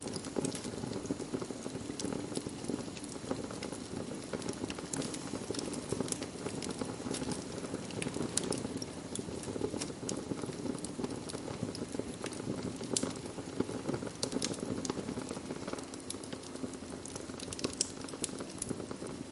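Wood crackling in a fire. 0:00.0 - 0:19.3

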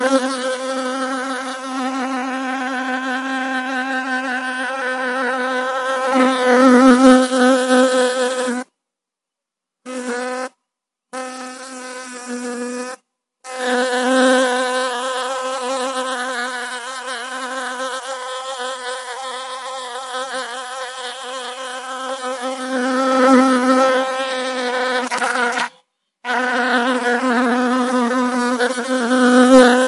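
A loud, annoying buzzing sound of a mosquito. 0:00.0 - 0:08.7
A mosquito is buzzing annoyingly. 0:09.8 - 0:13.0
A loud, annoying buzzing sound of a mosquito. 0:13.4 - 0:29.9

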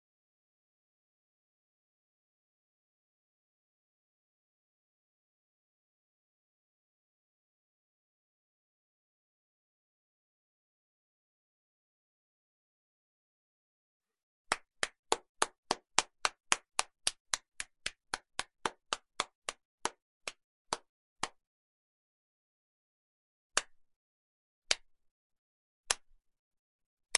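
A person clapping rhythmically. 0:14.1 - 0:21.8
A single hand claps. 0:23.1 - 0:25.0
A single hand claps. 0:25.7 - 0:26.2

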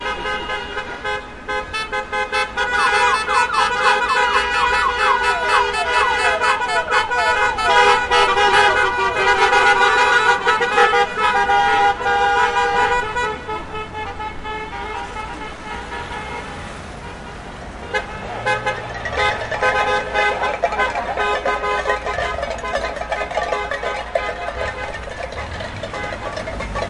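A car horn blasts repeatedly. 0:00.0 - 0:26.9
Cans clinking together continuously. 0:20.5 - 0:26.9

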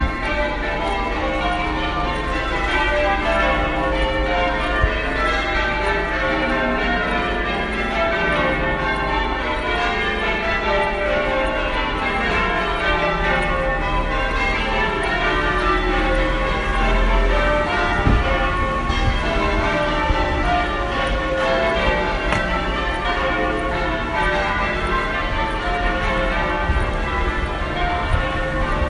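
Bells are ringing rhythmically at different tempos. 0:00.0 - 0:28.9
Footsteps. 0:22.2 - 0:22.6

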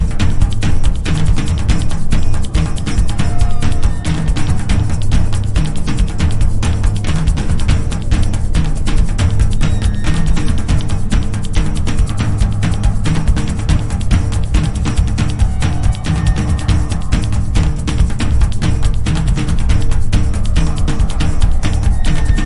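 A rhythmical drumbeat resembling thrilling music. 0:00.0 - 0:22.4
A shrill noise is heard in the background. 0:03.1 - 0:04.7
A shrill noise is heard in the background. 0:09.8 - 0:10.7
A shrill noise is heard in the background. 0:15.7 - 0:17.0

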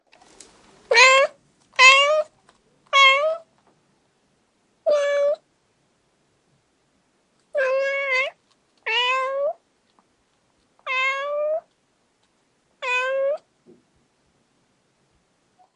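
A cat meows loudly and urgently, repeating several times. 0:00.8 - 0:03.4
A cat meows softly. 0:04.8 - 0:05.4
A cat meows softly and repeatedly. 0:07.5 - 0:09.6
A cat meows softly. 0:10.8 - 0:11.7
A cat meows softly. 0:12.8 - 0:13.4

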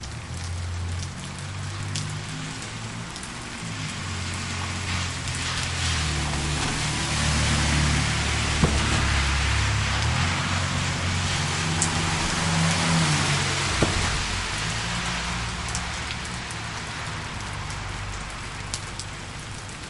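Moderately quiet raindrops falling steadily. 0:00.0 - 0:19.9
A car passes slowly on the street. 0:00.0 - 0:19.9
A short, dull thud is heard nearby. 0:08.6 - 0:08.8
A short, dull thud is heard nearby. 0:13.7 - 0:14.0

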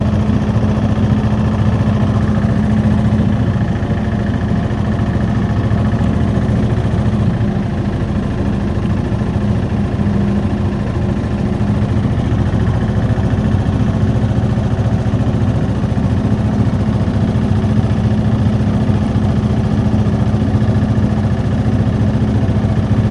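A ship engine produces a deep rumbling sound. 0:00.0 - 0:23.1

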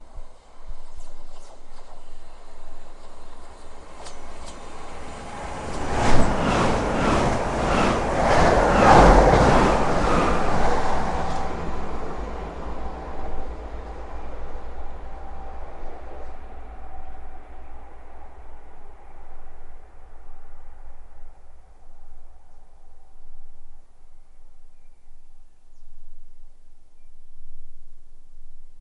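A train is moving quietly in the distance. 0:00.0 - 0:05.3
A train is passing by and fading away. 0:05.3 - 0:14.1
A train is moving quietly in the distance. 0:11.9 - 0:28.8

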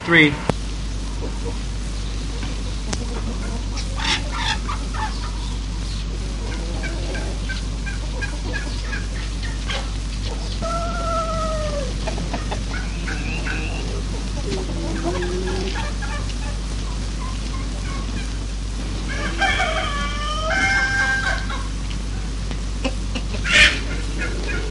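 A man is speaking loudly. 0:00.0 - 0:00.6
Chickens cluck in a barn. 0:03.1 - 0:24.7
A dog is whining. 0:10.1 - 0:12.7
A rooster crows in a barn. 0:19.0 - 0:21.9

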